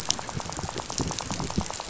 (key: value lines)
label: biophony, rattle
recorder: SoundTrap 500